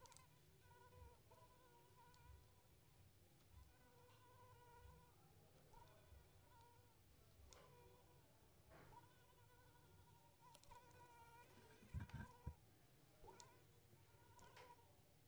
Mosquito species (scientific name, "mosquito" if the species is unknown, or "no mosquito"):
Anopheles arabiensis